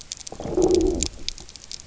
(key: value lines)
label: biophony, low growl
recorder: SoundTrap 300